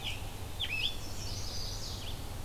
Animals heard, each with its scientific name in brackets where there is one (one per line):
Red-eyed Vireo (Vireo olivaceus)
Chestnut-sided Warbler (Setophaga pensylvanica)
Scarlet Tanager (Piranga olivacea)